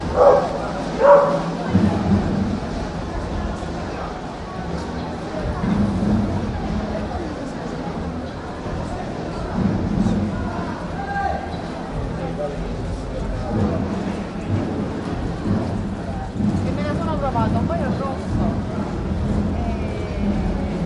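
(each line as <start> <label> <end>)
0.0 A dog barks in a city area. 1.6
1.7 A large crowd talking with overlapping voices and conversations on the street. 20.9
16.3 A woman is speaking to someone in a busy area. 20.9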